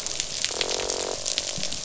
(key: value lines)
label: biophony, croak
recorder: SoundTrap 500